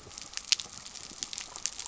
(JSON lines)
{"label": "biophony", "recorder": "SoundTrap 300"}